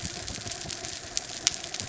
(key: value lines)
label: anthrophony, mechanical
recorder: SoundTrap 300